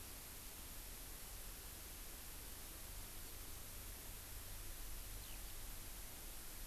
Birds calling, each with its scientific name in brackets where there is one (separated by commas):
Eurasian Skylark (Alauda arvensis)